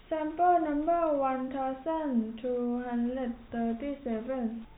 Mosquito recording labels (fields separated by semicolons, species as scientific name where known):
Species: no mosquito; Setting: cup